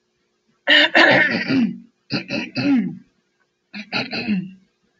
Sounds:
Throat clearing